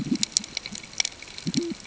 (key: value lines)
label: ambient
recorder: HydroMoth